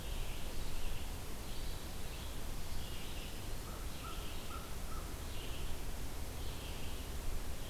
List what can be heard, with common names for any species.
Red-eyed Vireo, American Crow